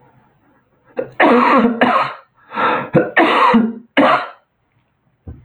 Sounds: Cough